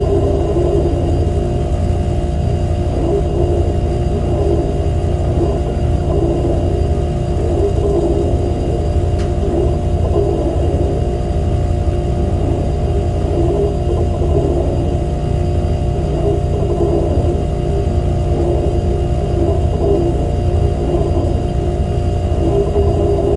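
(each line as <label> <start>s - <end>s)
A fridge hums constantly. 0.5s - 23.4s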